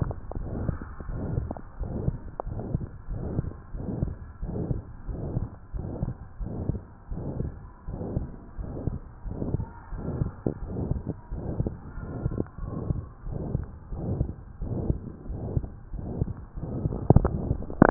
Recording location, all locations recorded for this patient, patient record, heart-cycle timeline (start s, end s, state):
pulmonary valve (PV)
aortic valve (AV)+pulmonary valve (PV)+tricuspid valve (TV)+mitral valve (MV)
#Age: Adolescent
#Sex: Male
#Height: 151.0 cm
#Weight: 53.6 kg
#Pregnancy status: False
#Murmur: Present
#Murmur locations: aortic valve (AV)+mitral valve (MV)+pulmonary valve (PV)+tricuspid valve (TV)
#Most audible location: pulmonary valve (PV)
#Systolic murmur timing: Holosystolic
#Systolic murmur shape: Plateau
#Systolic murmur grading: III/VI or higher
#Systolic murmur pitch: Medium
#Systolic murmur quality: Blowing
#Diastolic murmur timing: nan
#Diastolic murmur shape: nan
#Diastolic murmur grading: nan
#Diastolic murmur pitch: nan
#Diastolic murmur quality: nan
#Outcome: Abnormal
#Campaign: 2015 screening campaign
0.00	0.78	unannotated
0.78	1.08	diastole
1.08	1.21	S1
1.21	1.34	systole
1.34	1.48	S2
1.48	1.80	diastole
1.80	1.90	S1
1.90	2.04	systole
2.04	2.18	S2
2.18	2.41	diastole
2.41	2.64	S1
2.64	2.70	systole
2.70	2.82	S2
2.82	3.08	diastole
3.08	3.18	S1
3.18	3.36	systole
3.36	3.52	S2
3.52	3.74	diastole
3.74	3.84	S1
3.84	3.99	systole
3.99	4.16	S2
4.16	4.41	diastole
4.41	4.54	S1
4.54	4.68	systole
4.68	4.80	S2
4.80	5.05	diastole
5.05	5.19	S1
5.19	5.34	systole
5.34	5.48	S2
5.48	5.73	diastole
5.73	5.83	S1
5.83	6.00	systole
6.00	6.14	S2
6.14	6.39	diastole
6.39	6.51	S1
6.51	6.68	systole
6.68	6.80	S2
6.80	7.08	diastole
7.08	7.19	S1
7.19	7.38	systole
7.38	7.52	S2
7.52	7.85	diastole
7.85	7.96	S1
7.96	8.14	systole
8.14	8.26	S2
8.26	8.56	diastole
8.56	8.70	S1
8.70	8.82	systole
8.82	8.94	S2
8.94	9.23	diastole
9.23	9.36	S1
9.36	9.47	systole
9.47	9.59	S2
9.59	9.87	diastole
9.87	10.06	S1
10.06	10.16	systole
10.16	10.32	S2
10.32	10.59	diastole
10.59	10.74	S1
10.74	10.89	systole
10.89	11.02	S2
11.02	11.30	diastole
11.30	11.42	S1
11.42	11.56	systole
11.56	11.72	S2
11.72	11.96	diastole
11.96	12.14	S1
12.14	12.20	systole
12.20	12.34	S2
12.34	12.56	diastole
12.56	12.70	S1
12.70	12.88	systole
12.88	13.00	S2
13.00	13.23	diastole
13.23	13.40	S1
13.40	13.50	systole
13.50	13.66	S2
13.66	13.88	diastole
13.88	13.98	S1
13.98	14.17	systole
14.17	14.36	S2
14.36	14.58	diastole
14.58	14.74	S1
14.74	14.88	systole
14.88	15.02	S2
15.02	15.26	diastole
15.26	15.41	S1
15.41	15.50	systole
15.50	15.64	S2
15.64	15.90	diastole
15.90	16.01	S1
16.01	16.16	systole
16.16	16.30	S2
16.30	16.56	diastole
16.56	17.90	unannotated